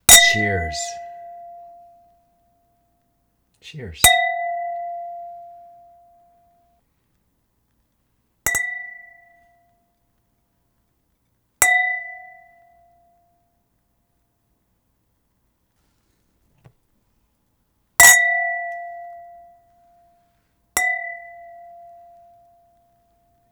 Is he angry?
no